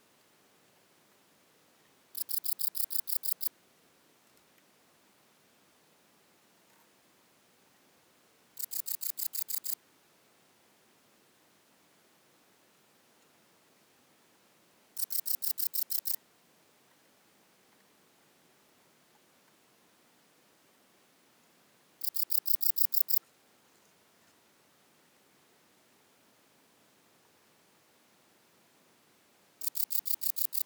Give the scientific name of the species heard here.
Modestana ebneri